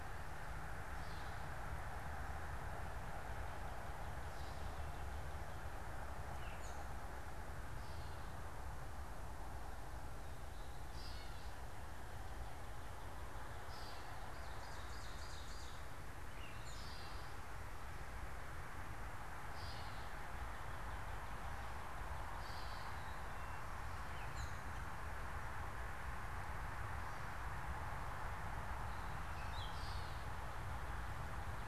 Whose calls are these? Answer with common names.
Gray Catbird, Ovenbird